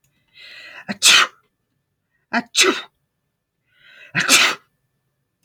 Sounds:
Sneeze